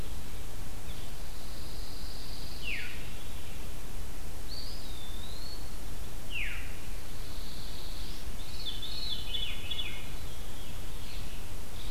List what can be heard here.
Pine Warbler, Veery, Eastern Wood-Pewee